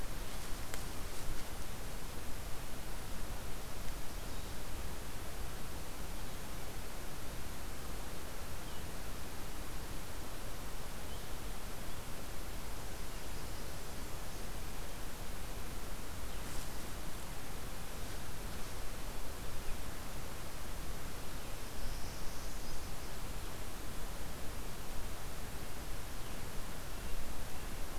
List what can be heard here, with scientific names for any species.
Setophaga americana